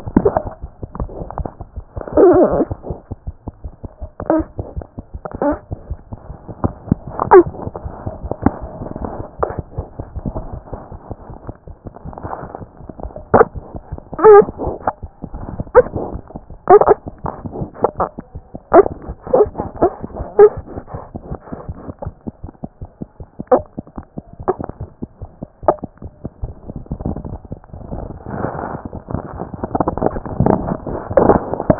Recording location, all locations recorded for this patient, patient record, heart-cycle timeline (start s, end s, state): aortic valve (AV)
aortic valve (AV)+mitral valve (MV)
#Age: Infant
#Sex: Male
#Height: 52.0 cm
#Weight: nan
#Pregnancy status: False
#Murmur: Absent
#Murmur locations: nan
#Most audible location: nan
#Systolic murmur timing: nan
#Systolic murmur shape: nan
#Systolic murmur grading: nan
#Systolic murmur pitch: nan
#Systolic murmur quality: nan
#Diastolic murmur timing: nan
#Diastolic murmur shape: nan
#Diastolic murmur grading: nan
#Diastolic murmur pitch: nan
#Diastolic murmur quality: nan
#Outcome: Abnormal
#Campaign: 2014 screening campaign
0.00	21.29	unannotated
21.29	21.36	S1
21.36	21.51	systole
21.51	21.56	S2
21.56	21.67	diastole
21.67	21.74	S1
21.74	21.89	systole
21.89	21.94	S2
21.94	22.06	diastole
22.06	22.13	S1
22.13	22.26	systole
22.26	22.31	S2
22.31	22.43	diastole
22.43	22.51	S1
22.51	22.63	systole
22.63	22.67	S2
22.67	22.81	diastole
22.81	22.90	S1
22.90	23.02	systole
23.02	23.06	S2
23.06	23.20	diastole
23.20	23.27	S1
23.27	23.40	systole
23.40	23.44	S2
23.44	23.60	diastole
23.60	31.79	unannotated